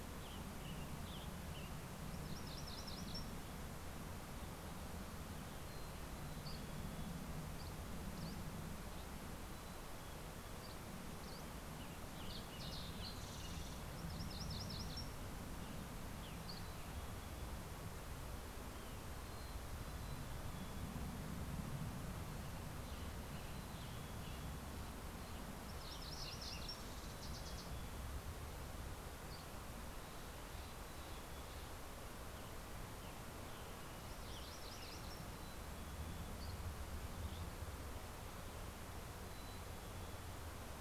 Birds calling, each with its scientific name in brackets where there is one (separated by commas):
Steller's Jay (Cyanocitta stelleri), Western Tanager (Piranga ludoviciana), MacGillivray's Warbler (Geothlypis tolmiei), Mountain Chickadee (Poecile gambeli), Spotted Towhee (Pipilo maculatus), Dusky Flycatcher (Empidonax oberholseri)